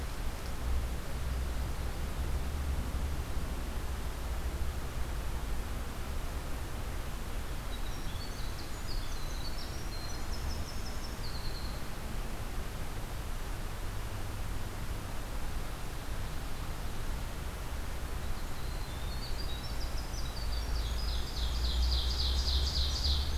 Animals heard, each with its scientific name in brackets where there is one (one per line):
Winter Wren (Troglodytes hiemalis)
Ovenbird (Seiurus aurocapilla)